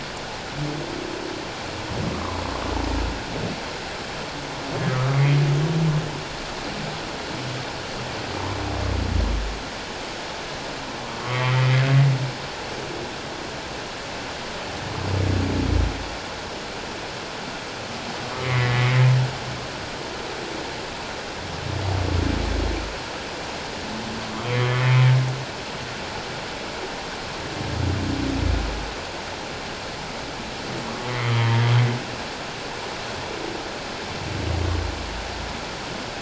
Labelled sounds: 2.1	2.4	humpback whale, 0.97 to 1.3 kHz
4.9	5.2	humpback whale, 1.1 to 1.3 kHz
11.2	11.8	humpback whale, 1.1 to 3.2 kHz
18.4	19.1	humpback whale, 1.8 to 2.3 kHz
24.5	24.9	humpback whale, 1.9 to 2.3 kHz
31.3	31.5	humpback whale, 3.0 to 3.3 kHz

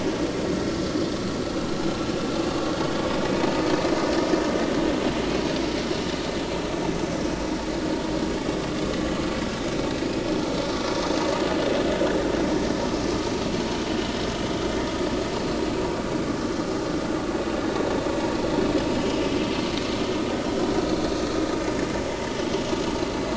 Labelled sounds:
19.0	19.2	vessel noise, 2.8 to 3.1 kHz

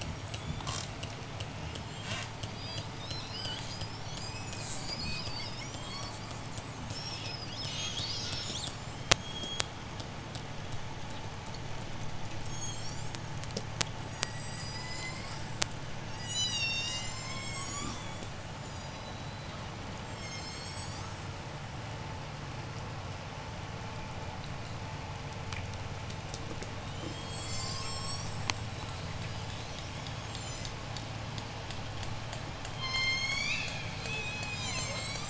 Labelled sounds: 0.0	10.0	killer whale, J pod, 0.52 to 8.0 kHz
12.3	13.3	killer whale, J pod, 2.8 to 8.0 kHz
13.8	15.6	killer whale, J pod, 0.82 to 8.0 kHz
16.0	21.4	killer whale, J pod, 0.82 to 8.0 kHz
19.4	25.2	vessel noise, 0 to 1.0 kHz
26.8	31.0	killer whale, J pod, 0.87 to 8.0 kHz
32.6	34.0	killer whale, J pod, call S01, 0.72 to 8.0 kHz
34.0	35.2	killer whale, J pod, 0.34 to 8.0 kHz

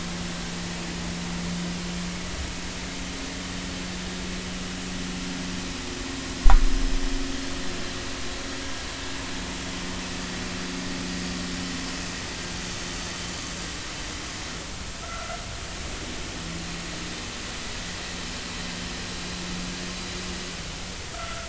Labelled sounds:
15.0	15.4	vessel noise, 1.2 to 1.5 kHz
21.1	21.4	vessel noise, 1.2 to 1.5 kHz

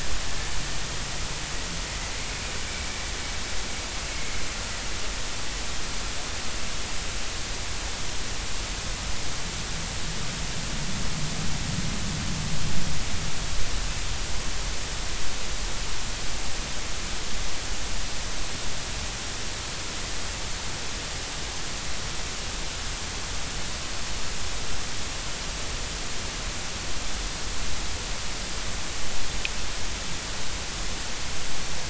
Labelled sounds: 4.1	4.4	vessel noise, 2.1 to 2.2 kHz

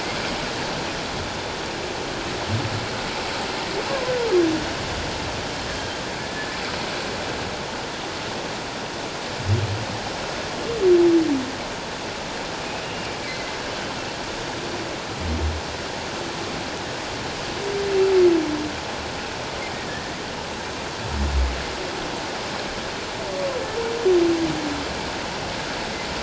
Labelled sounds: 12.8	13.5	humpback whale, 2.0 to 2.8 kHz
19.9	20.1	humpback whale, 1.7 to 1.9 kHz

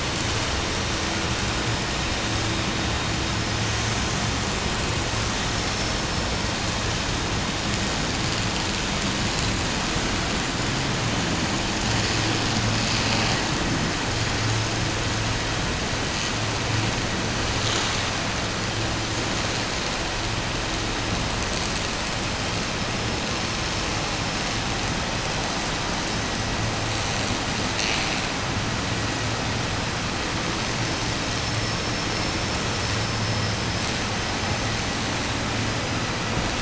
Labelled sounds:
31.2	32.3	vessel noise, 4.6 to 5.8 kHz
32.7	33.5	vessel noise, 4.4 to 6.1 kHz

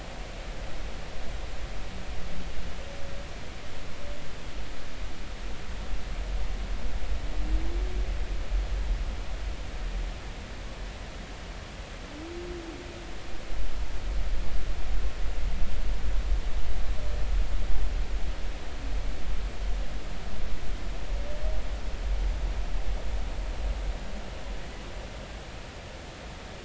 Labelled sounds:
24.6	24.9	humpback whale, 1.9 to 2.0 kHz

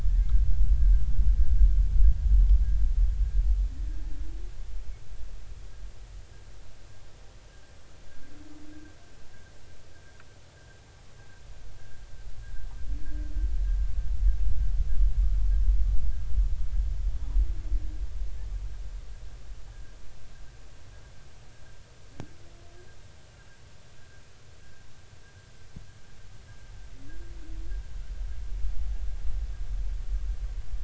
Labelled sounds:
19.7	20.0	humpback whale, 1.5 to 1.7 kHz

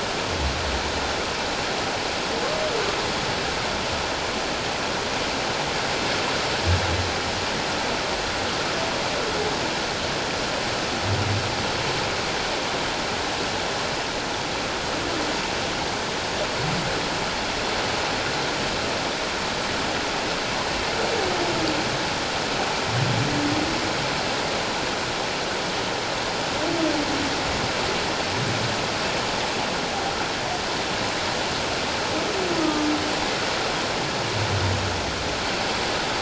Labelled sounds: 32.6	32.9	humpback whale, 1.2 to 1.3 kHz

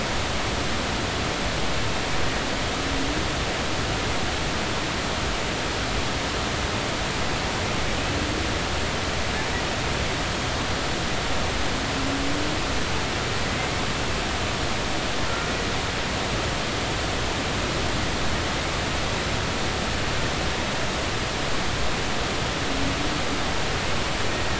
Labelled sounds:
13.6	13.8	humpback whale, 2.0 to 2.3 kHz
15.3	15.5	humpback whale, 1.3 to 1.4 kHz

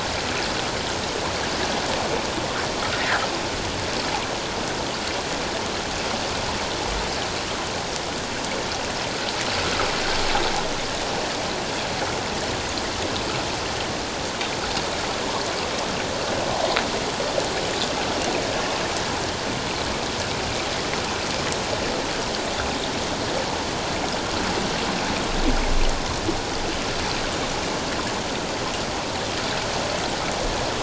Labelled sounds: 3.0	3.2	fish, 1.5 to 2.1 kHz

